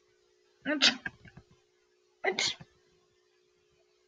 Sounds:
Sneeze